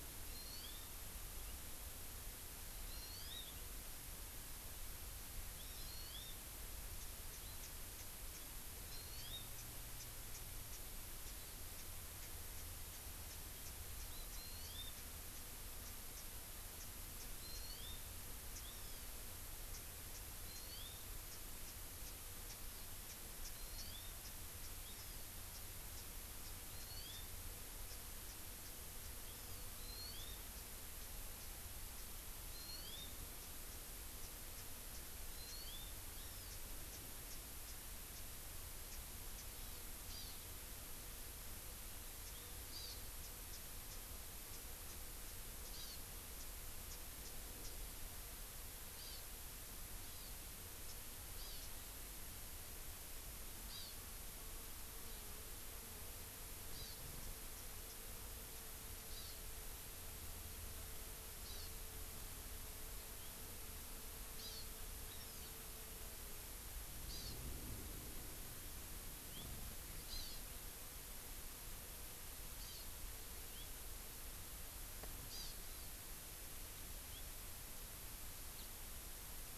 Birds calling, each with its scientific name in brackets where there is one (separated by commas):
Hawaii Amakihi (Chlorodrepanis virens), Japanese Bush Warbler (Horornis diphone)